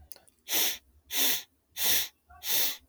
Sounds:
Sniff